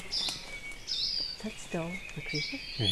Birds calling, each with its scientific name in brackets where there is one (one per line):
Hawaii Akepa (Loxops coccineus)
Apapane (Himatione sanguinea)
Hawaii Creeper (Loxops mana)
Red-billed Leiothrix (Leiothrix lutea)